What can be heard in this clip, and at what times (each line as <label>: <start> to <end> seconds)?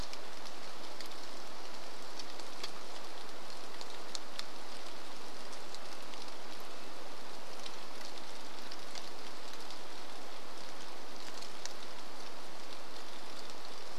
rain: 0 to 14 seconds
Red-breasted Nuthatch song: 4 to 8 seconds